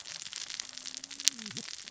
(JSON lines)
{"label": "biophony, cascading saw", "recorder": "SoundTrap 600 or HydroMoth"}